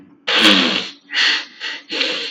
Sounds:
Sniff